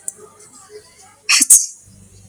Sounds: Sneeze